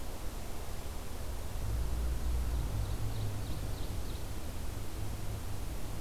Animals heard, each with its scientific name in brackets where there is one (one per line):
Ovenbird (Seiurus aurocapilla)